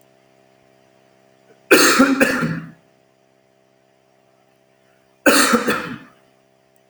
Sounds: Cough